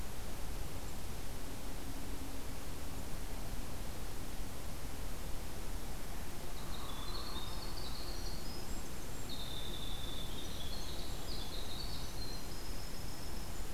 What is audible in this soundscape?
Hairy Woodpecker, Winter Wren